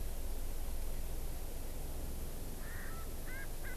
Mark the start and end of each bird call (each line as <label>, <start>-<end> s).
Erckel's Francolin (Pternistis erckelii), 2.6-3.8 s